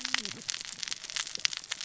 {"label": "biophony, cascading saw", "recorder": "SoundTrap 600 or HydroMoth"}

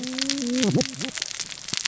{"label": "biophony, cascading saw", "recorder": "SoundTrap 600 or HydroMoth"}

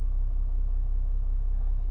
{"label": "anthrophony, boat engine", "recorder": "SoundTrap 300"}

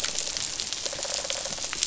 {"label": "biophony, rattle response", "recorder": "SoundTrap 500"}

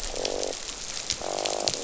{"label": "biophony, croak", "recorder": "SoundTrap 500"}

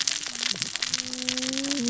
{"label": "biophony, cascading saw", "recorder": "SoundTrap 600 or HydroMoth"}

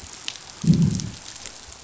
{"label": "biophony, growl", "recorder": "SoundTrap 500"}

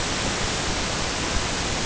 {"label": "ambient", "recorder": "HydroMoth"}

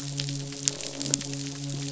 {"label": "biophony, midshipman", "recorder": "SoundTrap 500"}
{"label": "biophony, croak", "recorder": "SoundTrap 500"}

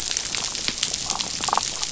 {"label": "biophony, damselfish", "recorder": "SoundTrap 500"}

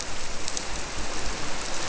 {"label": "biophony", "recorder": "SoundTrap 300"}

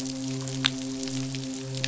{"label": "biophony, midshipman", "recorder": "SoundTrap 500"}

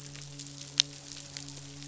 {"label": "biophony, midshipman", "recorder": "SoundTrap 500"}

